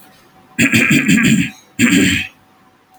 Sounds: Throat clearing